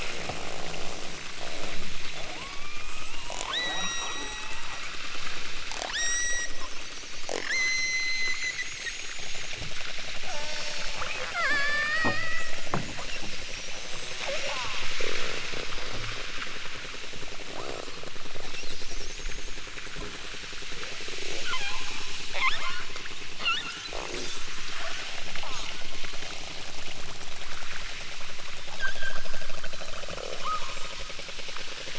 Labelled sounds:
2.3	3.2	killer whale, southern Alaska resident, 0.69 to 3.0 kHz
3.4	4.8	killer whale, southern Alaska resident, 0.55 to 8.0 kHz
5.7	6.6	killer whale, southern Alaska resident, 0.32 to 8.0 kHz
7.4	8.8	killer whale, southern Alaska resident, 1.0 to 8.0 kHz
10.2	12.7	killer whale, southern Alaska resident, 0.18 to 8.0 kHz
14.3	14.9	killer whale, southern Alaska resident, 0.28 to 2.0 kHz
21.3	22.0	killer whale, southern Alaska resident, 0.28 to 5.1 kHz
22.2	22.9	killer whale, southern Alaska resident, 0.32 to 4.5 kHz
23.3	23.9	killer whale, southern Alaska resident, 0.18 to 7.9 kHz
25.4	25.7	killer whale, southern Alaska resident, 0.21 to 1.5 kHz
28.7	29.4	killer whale, southern Alaska resident, 1.1 to 6.3 kHz
30.1	31.1	killer whale, southern Alaska resident, 0.23 to 4.3 kHz

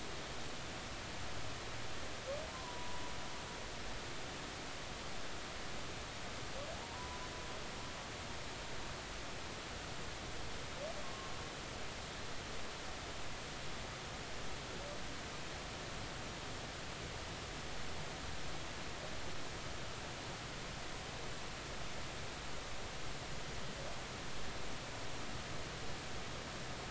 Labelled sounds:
2.5	3.0	humpback whale, 0.93 to 1.1 kHz
6.8	7.2	humpback whale, 0.80 to 1.1 kHz
11.0	11.3	humpback whale, 1.0 to 1.2 kHz

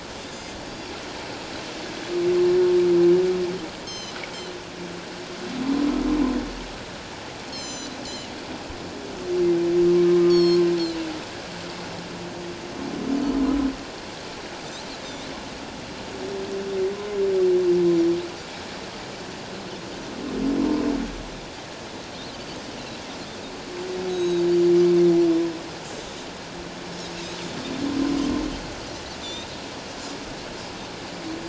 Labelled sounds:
0.3	0.5	Pacific white-sided dolphin, 4.8 to 5.1 kHz
3.8	4.2	Pacific white-sided dolphin, 2.9 to 7.9 kHz
7.5	8.3	Pacific white-sided dolphin, 2.8 to 7.5 kHz
10.3	10.6	Pacific white-sided dolphin, 3.1 to 6.8 kHz
15.0	15.3	Pacific white-sided dolphin, 3.5 to 3.9 kHz
24.1	24.4	Pacific white-sided dolphin, 3.7 to 6.6 kHz
29.2	29.6	Pacific white-sided dolphin, 3.4 to 7.6 kHz

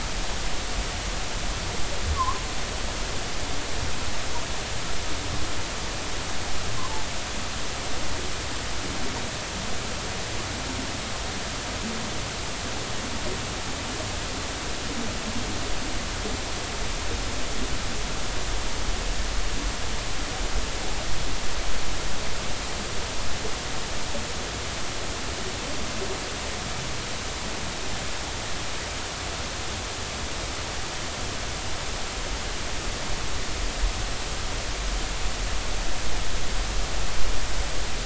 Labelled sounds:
2.2	2.4	humpback whale, 0.96 to 1.2 kHz

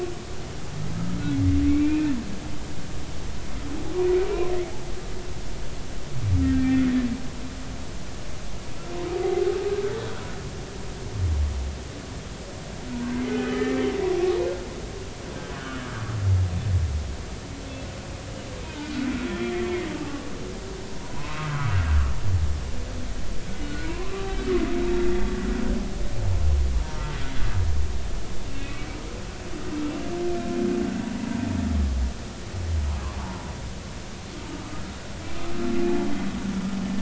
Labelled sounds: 1.6	2.1	humpback whale, 2.1 to 2.7 kHz
4.3	4.5	humpback whale, 2.2 to 2.5 kHz
6.4	6.8	humpback whale, 1.8 to 2.4 kHz
13.1	13.7	humpback whale, 2.0 to 3.1 kHz
14.4	14.7	humpback whale, 1.3 to 1.5 kHz
15.6	15.8	humpback whale, 1.3 to 1.8 kHz
18.7	19.8	humpback whale, 1.4 to 2.5 kHz
21.2	21.8	humpback whale, 0.93 to 2.7 kHz
23.7	24.5	humpback whale, 0.93 to 2.5 kHz
28.7	29.0	humpback whale, 2.2 to 2.4 kHz
33.2	33.5	humpback whale, 0.83 to 1.1 kHz

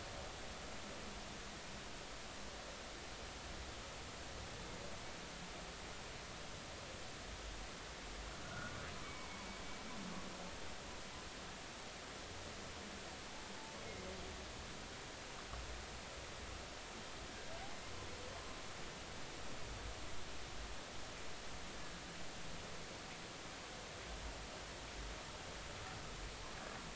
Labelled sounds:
8.4	9.4	humpback whale, 0.86 to 2.3 kHz

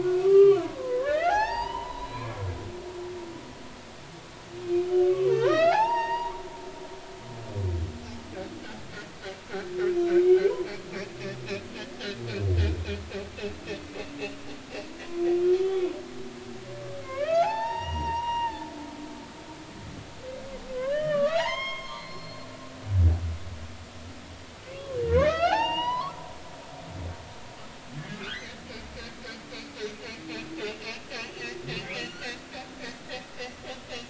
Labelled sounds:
0.0	2.4	humpback whale, 0.80 to 6.6 kHz
5.0	6.4	humpback whale, 0.80 to 5.7 kHz
15.5	16.0	humpback whale, 0.93 to 3.5 kHz
17.0	18.7	humpback whale, 0.80 to 5.8 kHz
20.7	22.5	humpback whale, 0.80 to 6.5 kHz
25.0	26.2	humpback whale, 0.80 to 6.0 kHz
28.2	28.6	humpback whale, 1.4 to 2.1 kHz
30.6	31.5	humpback whale, 2.4 to 2.9 kHz
32.0	32.4	humpback whale, 1.4 to 4.6 kHz

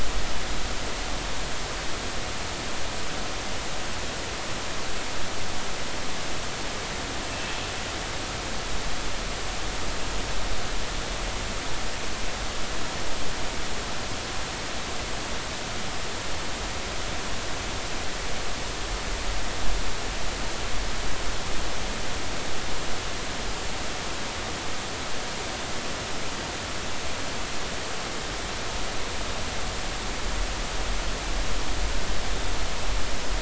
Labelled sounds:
7.3	7.5	killer whale, northern resident, G clan, call N24i, 2.6 to 2.8 kHz

